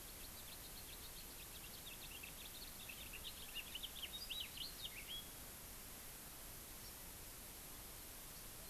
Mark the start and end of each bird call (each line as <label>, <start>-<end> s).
House Finch (Haemorhous mexicanus), 0.0-5.4 s
Hawaii Amakihi (Chlorodrepanis virens), 6.7-7.0 s